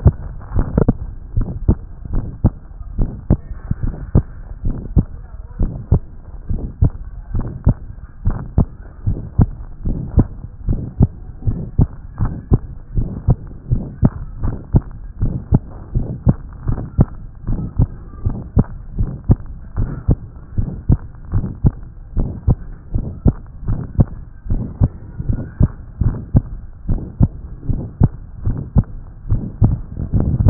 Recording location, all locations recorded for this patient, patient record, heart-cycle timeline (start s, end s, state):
tricuspid valve (TV)
aortic valve (AV)+aortic valve (AV)+pulmonary valve (PV)+pulmonary valve (PV)+tricuspid valve (TV)+mitral valve (MV)
#Age: Adolescent
#Sex: Female
#Height: 142.0 cm
#Weight: 26.5 kg
#Pregnancy status: False
#Murmur: Present
#Murmur locations: aortic valve (AV)+pulmonary valve (PV)+tricuspid valve (TV)
#Most audible location: tricuspid valve (TV)
#Systolic murmur timing: Holosystolic
#Systolic murmur shape: Decrescendo
#Systolic murmur grading: I/VI
#Systolic murmur pitch: Medium
#Systolic murmur quality: Harsh
#Diastolic murmur timing: nan
#Diastolic murmur shape: nan
#Diastolic murmur grading: nan
#Diastolic murmur pitch: nan
#Diastolic murmur quality: nan
#Outcome: Abnormal
#Campaign: 2014 screening campaign
0.00	1.36	unannotated
1.36	1.48	S1
1.48	1.66	systole
1.66	1.78	S2
1.78	2.14	diastole
2.14	2.26	S1
2.26	2.44	systole
2.44	2.52	S2
2.52	2.98	diastole
2.98	3.10	S1
3.10	3.28	systole
3.28	3.38	S2
3.38	3.82	diastole
3.82	3.94	S1
3.94	4.14	systole
4.14	4.24	S2
4.24	4.64	diastole
4.64	4.76	S1
4.76	4.94	systole
4.94	5.06	S2
5.06	5.60	diastole
5.60	5.72	S1
5.72	5.90	systole
5.90	6.02	S2
6.02	6.50	diastole
6.50	6.62	S1
6.62	6.80	systole
6.80	6.92	S2
6.92	7.34	diastole
7.34	7.46	S1
7.46	7.66	systole
7.66	7.76	S2
7.76	8.26	diastole
8.26	8.38	S1
8.38	8.56	systole
8.56	8.66	S2
8.66	9.06	diastole
9.06	9.18	S1
9.18	9.38	systole
9.38	9.50	S2
9.50	9.86	diastole
9.86	9.98	S1
9.98	10.16	systole
10.16	10.26	S2
10.26	10.68	diastole
10.68	10.80	S1
10.80	11.00	systole
11.00	11.10	S2
11.10	11.46	diastole
11.46	11.60	S1
11.60	11.78	systole
11.78	11.88	S2
11.88	12.20	diastole
12.20	12.32	S1
12.32	12.50	systole
12.50	12.60	S2
12.60	12.96	diastole
12.96	13.08	S1
13.08	13.28	systole
13.28	13.38	S2
13.38	13.70	diastole
13.70	13.84	S1
13.84	14.02	systole
14.02	14.12	S2
14.12	14.42	diastole
14.42	14.56	S1
14.56	14.74	systole
14.74	14.84	S2
14.84	15.22	diastole
15.22	15.34	S1
15.34	15.52	systole
15.52	15.62	S2
15.62	15.96	diastole
15.96	16.08	S1
16.08	16.26	systole
16.26	16.36	S2
16.36	16.68	diastole
16.68	16.78	S1
16.78	16.98	systole
16.98	17.08	S2
17.08	17.50	diastole
17.50	17.62	S1
17.62	17.78	systole
17.78	17.88	S2
17.88	18.24	diastole
18.24	18.36	S1
18.36	18.56	systole
18.56	18.66	S2
18.66	18.98	diastole
18.98	19.10	S1
19.10	19.28	systole
19.28	19.38	S2
19.38	19.78	diastole
19.78	19.90	S1
19.90	20.08	systole
20.08	20.18	S2
20.18	20.58	diastole
20.58	20.70	S1
20.70	20.88	systole
20.88	20.98	S2
20.98	21.34	diastole
21.34	21.46	S1
21.46	21.64	systole
21.64	21.74	S2
21.74	22.18	diastole
22.18	22.30	S1
22.30	22.46	systole
22.46	22.58	S2
22.58	22.94	diastole
22.94	23.06	S1
23.06	23.24	systole
23.24	23.34	S2
23.34	23.68	diastole
23.68	23.80	S1
23.80	23.98	systole
23.98	24.08	S2
24.08	24.50	diastole
24.50	24.64	S1
24.64	24.80	systole
24.80	24.90	S2
24.90	25.28	diastole
25.28	25.42	S1
25.42	25.60	systole
25.60	25.70	S2
25.70	26.02	diastole
26.02	26.16	S1
26.16	26.34	systole
26.34	26.44	S2
26.44	26.88	diastole
26.88	27.00	S1
27.00	27.20	systole
27.20	27.30	S2
27.30	27.70	diastole
27.70	27.82	S1
27.82	28.00	systole
28.00	28.10	S2
28.10	28.46	diastole
28.46	28.58	S1
28.58	28.76	systole
28.76	28.86	S2
28.86	29.30	diastole
29.30	29.42	S1
29.42	29.62	systole
29.62	29.73	S2
29.73	30.13	diastole
30.13	30.50	unannotated